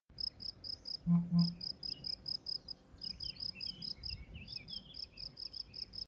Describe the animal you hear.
Gryllus campestris, an orthopteran